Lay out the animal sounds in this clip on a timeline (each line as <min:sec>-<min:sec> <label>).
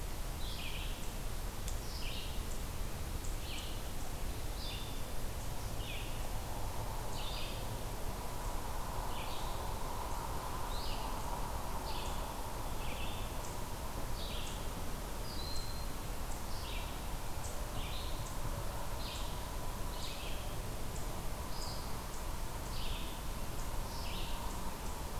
0:00.0-0:19.4 Red-eyed Vireo (Vireo olivaceus)
0:15.2-0:16.0 Broad-winged Hawk (Buteo platypterus)
0:19.8-0:25.2 Red-eyed Vireo (Vireo olivaceus)